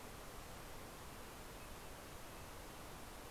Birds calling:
American Robin (Turdus migratorius)

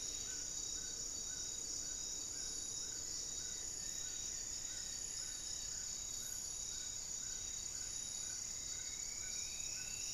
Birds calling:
unidentified bird, Undulated Tinamou (Crypturellus undulatus), Striped Woodcreeper (Xiphorhynchus obsoletus), Goeldi's Antbird (Akletos goeldii), Amazonian Trogon (Trogon ramonianus)

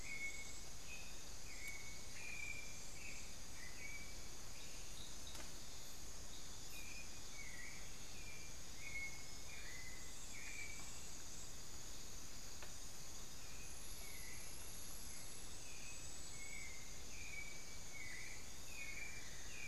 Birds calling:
Amazonian Barred-Woodcreeper (Dendrocolaptes certhia), White-necked Thrush (Turdus albicollis)

